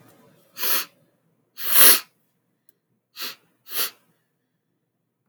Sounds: Sniff